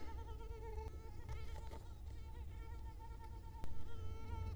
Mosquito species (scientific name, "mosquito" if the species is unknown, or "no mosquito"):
Culex quinquefasciatus